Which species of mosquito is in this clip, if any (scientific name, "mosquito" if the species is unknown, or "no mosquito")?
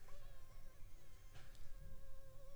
Anopheles funestus s.s.